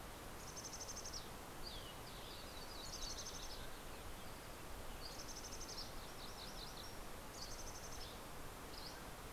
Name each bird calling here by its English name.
Mountain Chickadee, Yellow-rumped Warbler, MacGillivray's Warbler, Dusky Flycatcher